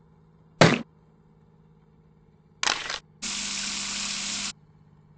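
At 0.58 seconds, there is thumping. Next, at 2.61 seconds, the sound of a single-lens reflex camera is heard. Finally, at 3.22 seconds, a water tap is audible.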